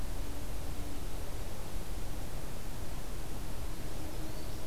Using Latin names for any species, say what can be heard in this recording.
Setophaga virens